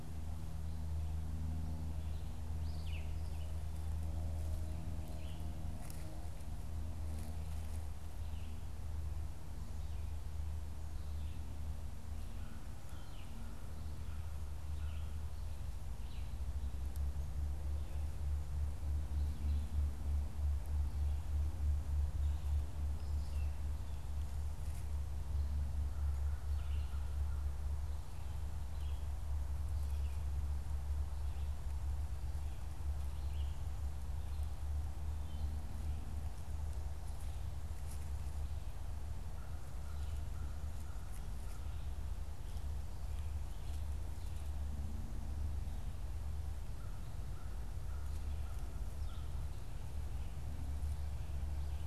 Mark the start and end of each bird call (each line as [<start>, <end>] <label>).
[0.00, 35.82] Red-eyed Vireo (Vireo olivaceus)
[39.22, 41.92] American Crow (Corvus brachyrhynchos)
[46.52, 49.32] American Crow (Corvus brachyrhynchos)